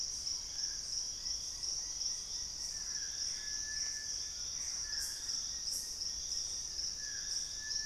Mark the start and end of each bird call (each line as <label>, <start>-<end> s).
Little Tinamou (Crypturellus soui), 0.0-7.9 s
Plain-winged Antshrike (Thamnophilus schistaceus), 1.0-7.3 s
Gray Antbird (Cercomacra cinerascens), 2.7-5.0 s
Collared Trogon (Trogon collaris), 4.1-5.8 s